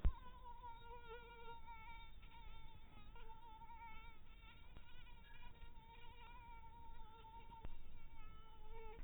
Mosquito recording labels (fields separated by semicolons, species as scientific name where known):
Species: mosquito; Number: one; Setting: cup